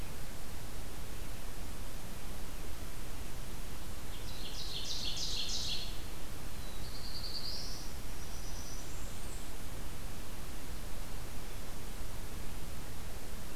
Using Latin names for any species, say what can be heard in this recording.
Seiurus aurocapilla, Setophaga caerulescens